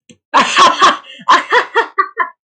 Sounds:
Laughter